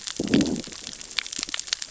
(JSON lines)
{"label": "biophony, growl", "recorder": "SoundTrap 600 or HydroMoth"}